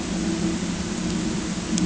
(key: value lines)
label: ambient
recorder: HydroMoth